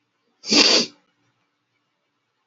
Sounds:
Sniff